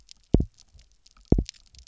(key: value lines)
label: biophony, double pulse
recorder: SoundTrap 300